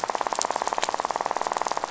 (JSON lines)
{"label": "biophony, rattle", "recorder": "SoundTrap 500"}